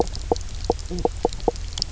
{"label": "biophony, knock croak", "recorder": "SoundTrap 300"}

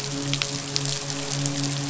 {"label": "biophony, midshipman", "recorder": "SoundTrap 500"}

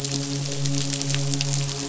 {"label": "biophony, midshipman", "recorder": "SoundTrap 500"}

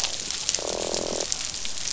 {"label": "biophony, croak", "recorder": "SoundTrap 500"}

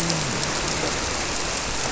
{"label": "biophony, grouper", "recorder": "SoundTrap 300"}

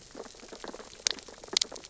{"label": "biophony, sea urchins (Echinidae)", "recorder": "SoundTrap 600 or HydroMoth"}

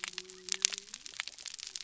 {"label": "biophony", "recorder": "SoundTrap 300"}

